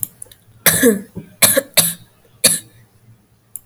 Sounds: Cough